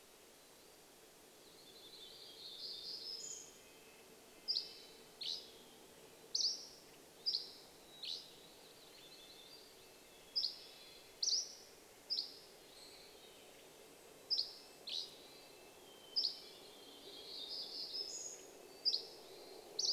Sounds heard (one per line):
warbler song
Hermit Thrush call
airplane
Hermit Thrush song
Red-breasted Nuthatch song
Western Tanager call
Dusky Flycatcher song